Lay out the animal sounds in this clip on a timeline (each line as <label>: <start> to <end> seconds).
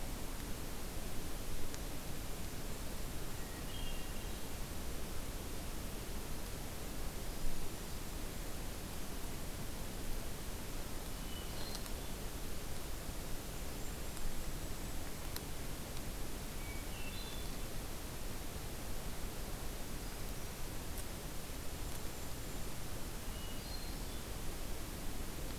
Hermit Thrush (Catharus guttatus): 3.2 to 4.6 seconds
Hermit Thrush (Catharus guttatus): 11.0 to 12.1 seconds
Golden-crowned Kinglet (Regulus satrapa): 13.0 to 15.4 seconds
Hermit Thrush (Catharus guttatus): 16.5 to 17.6 seconds
Golden-crowned Kinglet (Regulus satrapa): 21.3 to 22.8 seconds
Hermit Thrush (Catharus guttatus): 23.2 to 24.4 seconds